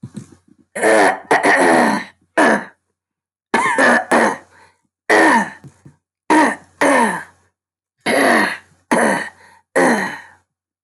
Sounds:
Throat clearing